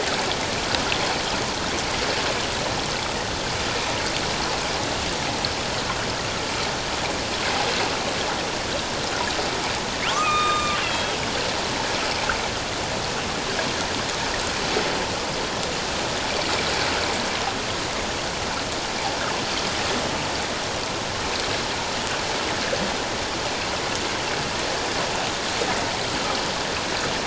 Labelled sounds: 10.1	11.2	killer whale, northern resident, A clan, AB subclan, H01 pod, 1.0 to 7.9 kHz

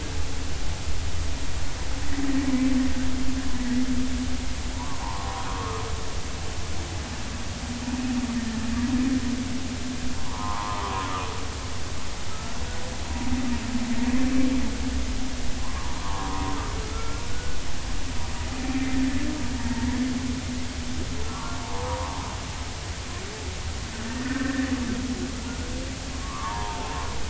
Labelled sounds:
3.5	3.8	humpback whale, 1.8 to 2.0 kHz
4.7	5.9	humpback whale, 0.80 to 1.3 kHz
10.2	11.1	humpback whale, 0.80 to 1.3 kHz
12.3	12.5	humpback whale, 1.2 to 1.4 kHz
15.6	16.5	humpback whale, 0.83 to 1.2 kHz
16.9	17.6	humpback whale, 1.3 to 2.3 kHz
18.7	18.9	humpback whale, 2.3 to 2.5 kHz
21.3	22.3	humpback whale, 0.80 to 1.3 kHz
24.2	24.7	humpback whale, 1.4 to 2.0 kHz
26.2	26.9	humpback whale, 0.80 to 1.3 kHz

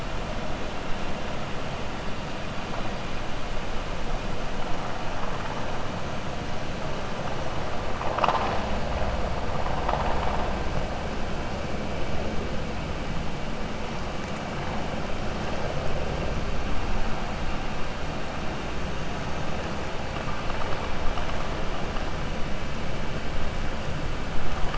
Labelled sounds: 7.9	8.6	vessel noise, 0.49 to 5.8 kHz

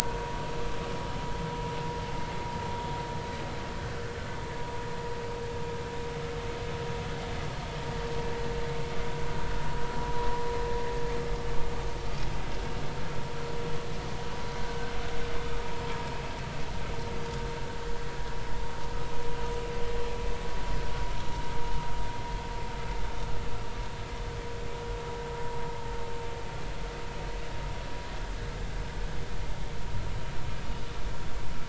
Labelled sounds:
1.0	1.5	vessel noise, 0.90 to 1.1 kHz

